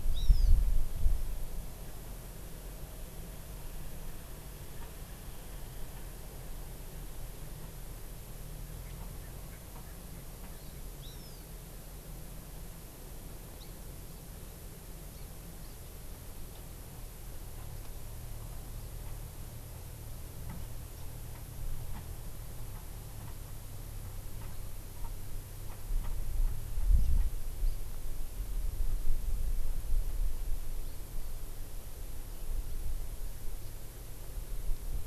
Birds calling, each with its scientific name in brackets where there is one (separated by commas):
Hawaii Amakihi (Chlorodrepanis virens)